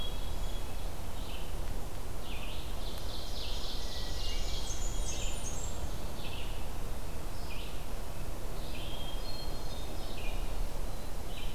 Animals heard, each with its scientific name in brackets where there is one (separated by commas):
Ovenbird (Seiurus aurocapilla), Hermit Thrush (Catharus guttatus), Blackburnian Warbler (Setophaga fusca), Red-eyed Vireo (Vireo olivaceus)